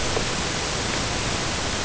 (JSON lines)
{"label": "ambient", "recorder": "HydroMoth"}